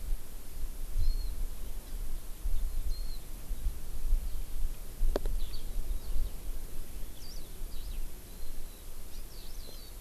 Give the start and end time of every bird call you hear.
1.0s-1.3s: Warbling White-eye (Zosterops japonicus)
2.9s-3.2s: Warbling White-eye (Zosterops japonicus)
5.4s-5.7s: Eurasian Skylark (Alauda arvensis)
7.7s-8.0s: Eurasian Skylark (Alauda arvensis)
9.1s-9.9s: Eurasian Skylark (Alauda arvensis)

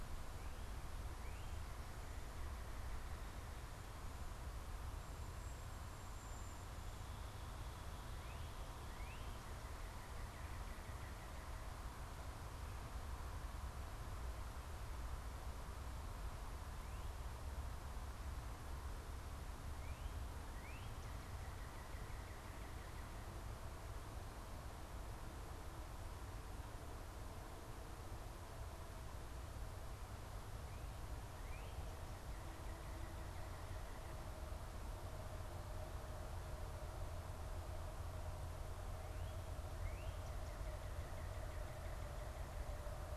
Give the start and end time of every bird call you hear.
0.9s-3.9s: Northern Cardinal (Cardinalis cardinalis)
5.3s-6.8s: Cedar Waxwing (Bombycilla cedrorum)
7.9s-11.7s: Northern Cardinal (Cardinalis cardinalis)
19.6s-23.3s: Northern Cardinal (Cardinalis cardinalis)
31.1s-34.7s: Northern Cardinal (Cardinalis cardinalis)
39.6s-42.9s: Northern Cardinal (Cardinalis cardinalis)

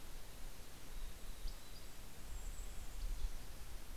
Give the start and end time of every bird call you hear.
0.0s-2.0s: Mountain Chickadee (Poecile gambeli)
0.5s-3.5s: Golden-crowned Kinglet (Regulus satrapa)
1.5s-2.0s: Dusky Flycatcher (Empidonax oberholseri)

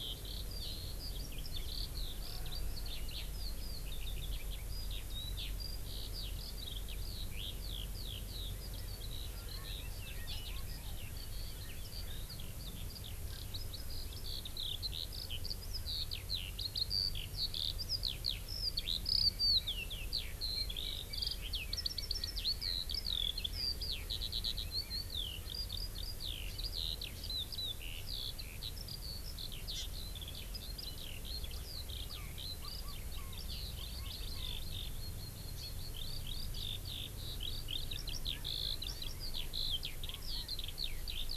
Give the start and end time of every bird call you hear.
0.0s-41.4s: Eurasian Skylark (Alauda arvensis)
29.7s-29.8s: Hawaii Amakihi (Chlorodrepanis virens)

